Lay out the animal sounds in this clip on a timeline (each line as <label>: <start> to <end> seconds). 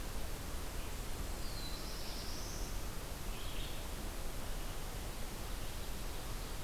Red-eyed Vireo (Vireo olivaceus): 0.0 to 6.6 seconds
Black-throated Blue Warbler (Setophaga caerulescens): 1.3 to 3.0 seconds